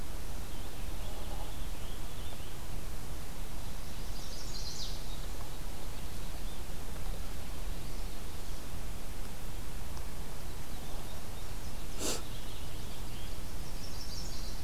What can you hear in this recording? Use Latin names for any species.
Pheucticus ludovicianus, Setophaga pensylvanica, Passerina cyanea